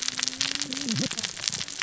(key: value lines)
label: biophony, cascading saw
recorder: SoundTrap 600 or HydroMoth